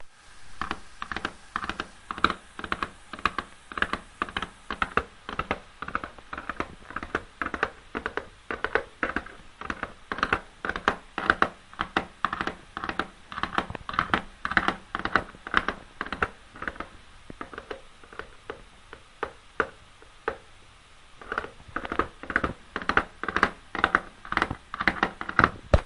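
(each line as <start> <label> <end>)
0.0 A constant faint white noise in the background. 25.9
0.4 A horse runs with the rhythmic clip-clop of hooves striking the ground. 16.9
17.0 A horse is running with the clip-clop sound of hooves striking the floor, fading and slowing down. 21.0
21.2 A horse runs with the clip-clop sound of hooves striking the floor, accelerating. 25.9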